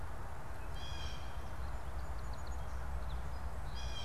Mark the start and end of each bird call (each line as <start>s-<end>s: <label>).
0.0s-4.0s: Blue Jay (Cyanocitta cristata)
1.9s-3.6s: Song Sparrow (Melospiza melodia)